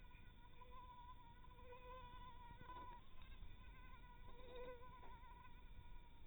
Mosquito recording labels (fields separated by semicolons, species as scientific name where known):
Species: mosquito; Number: one; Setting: cup